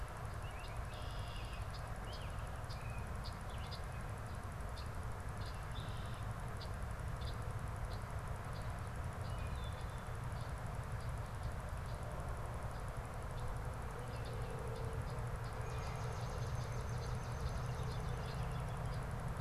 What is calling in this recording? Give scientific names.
Turdus migratorius, Agelaius phoeniceus, Hylocichla mustelina